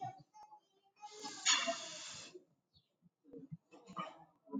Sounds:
Sniff